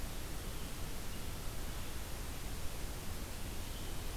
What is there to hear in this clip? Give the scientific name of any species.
forest ambience